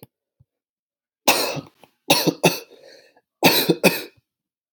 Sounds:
Cough